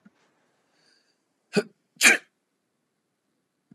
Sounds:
Sneeze